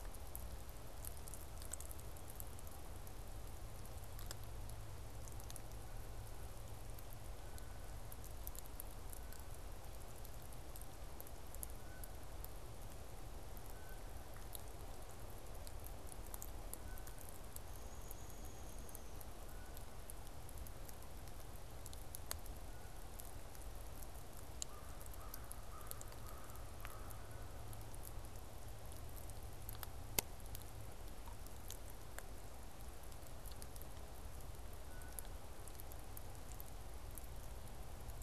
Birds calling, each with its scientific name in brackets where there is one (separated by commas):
American Crow (Corvus brachyrhynchos), Downy Woodpecker (Dryobates pubescens)